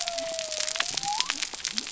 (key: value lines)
label: biophony
recorder: SoundTrap 300